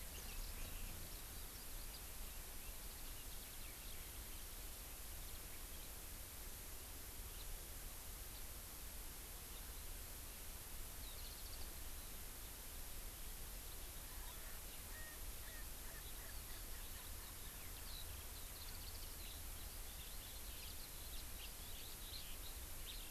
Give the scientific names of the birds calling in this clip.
Leiothrix lutea, Alauda arvensis, Zosterops japonicus, Pternistis erckelii